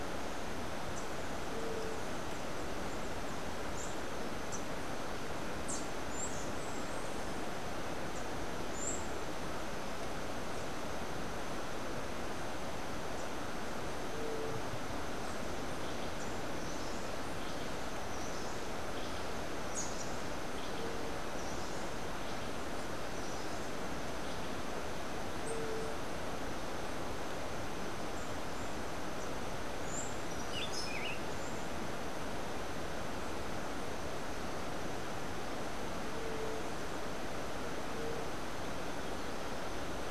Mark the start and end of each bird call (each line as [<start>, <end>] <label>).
[3.61, 5.81] Rufous-capped Warbler (Basileuterus rufifrons)
[6.01, 9.21] Buff-throated Saltator (Saltator maximus)
[19.71, 20.01] Rufous-capped Warbler (Basileuterus rufifrons)
[29.81, 31.31] Buff-throated Saltator (Saltator maximus)